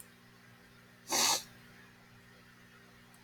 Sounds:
Sniff